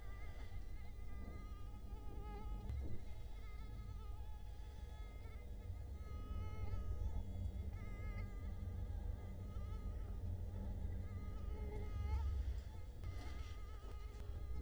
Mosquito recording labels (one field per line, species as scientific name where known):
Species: Culex quinquefasciatus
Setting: cup